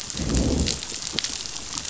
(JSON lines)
{"label": "biophony, growl", "recorder": "SoundTrap 500"}